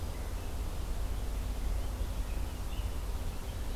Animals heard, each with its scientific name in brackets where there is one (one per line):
Purple Finch (Haemorhous purpureus)
Red-eyed Vireo (Vireo olivaceus)